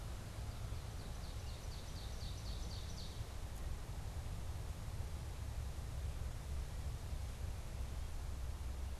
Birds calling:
Ovenbird (Seiurus aurocapilla)

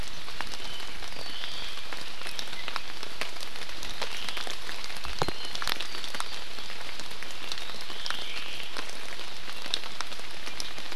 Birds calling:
Iiwi (Drepanis coccinea)
Omao (Myadestes obscurus)

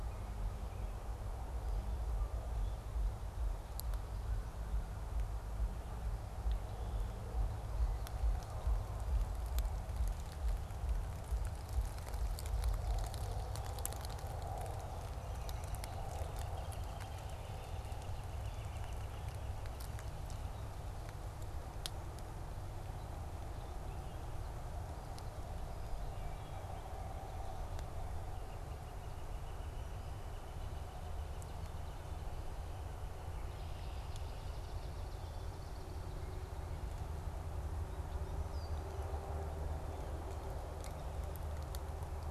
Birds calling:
Red-winged Blackbird (Agelaius phoeniceus)
Song Sparrow (Melospiza melodia)
Swamp Sparrow (Melospiza georgiana)
Northern Flicker (Colaptes auratus)

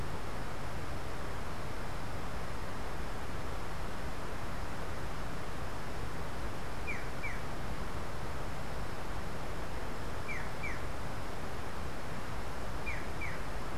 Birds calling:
Black-chested Jay (Cyanocorax affinis)

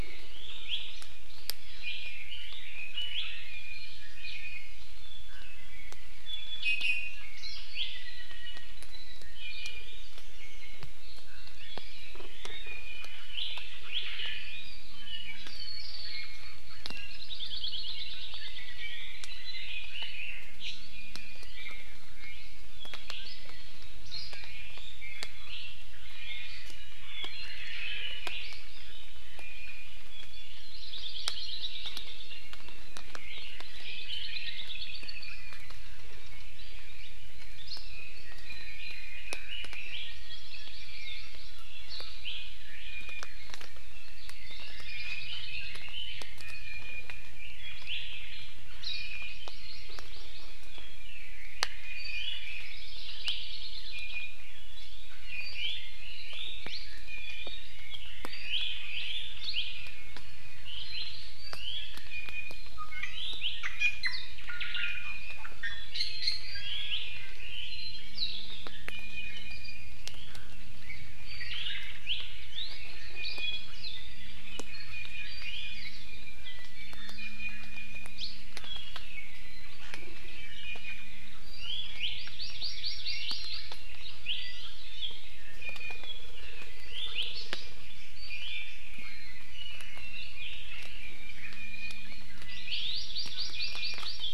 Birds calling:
Red-billed Leiothrix (Leiothrix lutea)
Apapane (Himatione sanguinea)
Hawaii Amakihi (Chlorodrepanis virens)
Hawaii Creeper (Loxops mana)
Iiwi (Drepanis coccinea)
Omao (Myadestes obscurus)

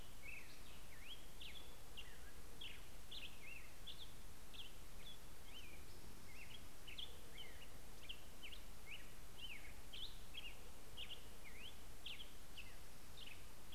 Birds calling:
Spotted Towhee (Pipilo maculatus)
Black-headed Grosbeak (Pheucticus melanocephalus)

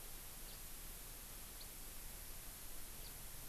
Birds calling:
House Finch (Haemorhous mexicanus)

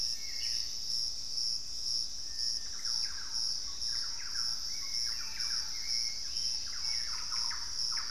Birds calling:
Hauxwell's Thrush (Turdus hauxwelli)
unidentified bird
Thrush-like Wren (Campylorhynchus turdinus)

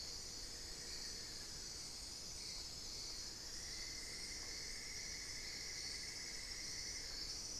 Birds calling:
Cinnamon-throated Woodcreeper (Dendrexetastes rufigula)
Amazonian Barred-Woodcreeper (Dendrocolaptes certhia)

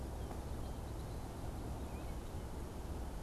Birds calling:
Red-winged Blackbird (Agelaius phoeniceus)
Tufted Titmouse (Baeolophus bicolor)

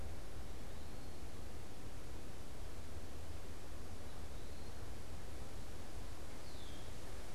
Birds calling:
Eastern Wood-Pewee (Contopus virens)

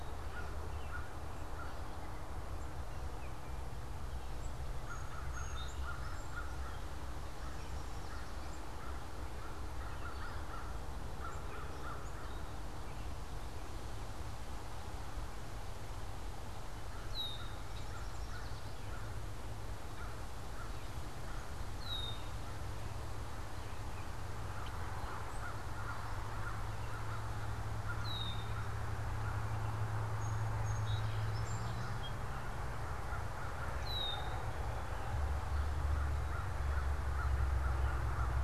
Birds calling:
Yellow Warbler (Setophaga petechia)
Song Sparrow (Melospiza melodia)
American Crow (Corvus brachyrhynchos)
Red-winged Blackbird (Agelaius phoeniceus)

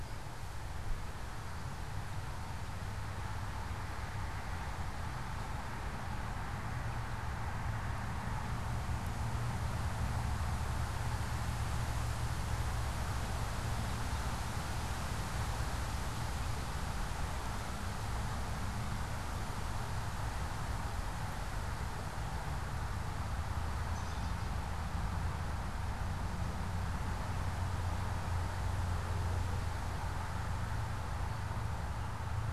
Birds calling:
American Robin (Turdus migratorius)

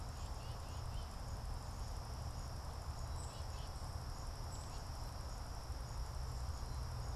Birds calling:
Tufted Titmouse (Baeolophus bicolor)

